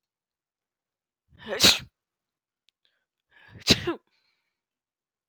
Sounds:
Sneeze